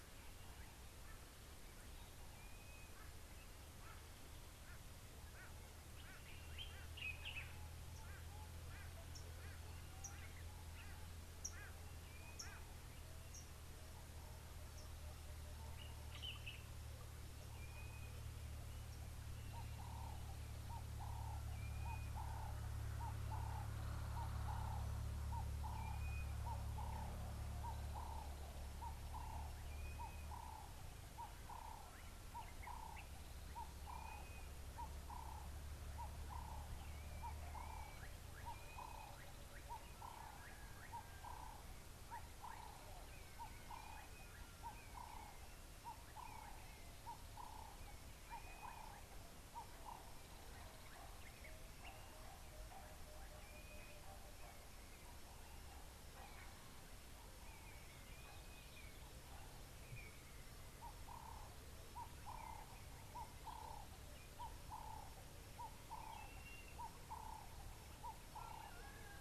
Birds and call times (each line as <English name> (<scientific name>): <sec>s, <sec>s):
Common Bulbul (Pycnonotus barbatus): 7.2s
Blue-naped Mousebird (Urocolius macrourus): 21.8s, 34.3s, 58.4s
Ring-necked Dove (Streptopelia capicola): 28.9s, 45.1s, 67.2s